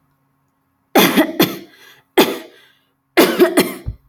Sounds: Cough